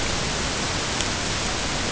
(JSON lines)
{"label": "ambient", "recorder": "HydroMoth"}